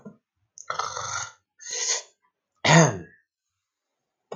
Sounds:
Throat clearing